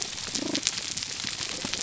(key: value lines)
label: biophony, damselfish
recorder: SoundTrap 300